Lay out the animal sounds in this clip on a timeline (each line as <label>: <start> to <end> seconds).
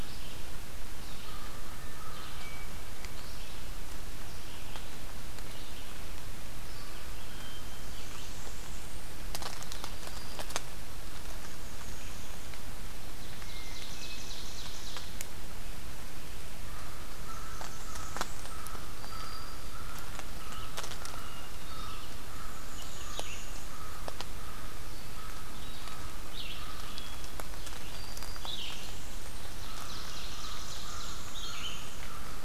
Red-eyed Vireo (Vireo olivaceus): 0.0 to 8.5 seconds
American Crow (Corvus brachyrhynchos): 1.2 to 2.4 seconds
Hermit Thrush (Catharus guttatus): 2.2 to 2.9 seconds
Hermit Thrush (Catharus guttatus): 7.1 to 8.1 seconds
Blackburnian Warbler (Setophaga fusca): 7.8 to 9.2 seconds
Black-throated Green Warbler (Setophaga virens): 9.4 to 10.6 seconds
Northern Parula (Setophaga americana): 11.0 to 12.6 seconds
Ovenbird (Seiurus aurocapilla): 12.9 to 15.4 seconds
Hermit Thrush (Catharus guttatus): 13.3 to 14.5 seconds
American Crow (Corvus brachyrhynchos): 16.9 to 27.4 seconds
Blackburnian Warbler (Setophaga fusca): 17.1 to 18.7 seconds
Black-throated Green Warbler (Setophaga virens): 18.8 to 19.9 seconds
Red-eyed Vireo (Vireo olivaceus): 20.3 to 32.4 seconds
Hermit Thrush (Catharus guttatus): 21.0 to 22.2 seconds
Northern Parula (Setophaga americana): 22.1 to 23.8 seconds
Hermit Thrush (Catharus guttatus): 26.6 to 27.5 seconds
Black-throated Green Warbler (Setophaga virens): 27.7 to 28.5 seconds
Blackburnian Warbler (Setophaga fusca): 28.3 to 29.5 seconds
Ovenbird (Seiurus aurocapilla): 29.3 to 31.4 seconds
American Crow (Corvus brachyrhynchos): 29.4 to 32.4 seconds
Northern Parula (Setophaga americana): 30.5 to 32.0 seconds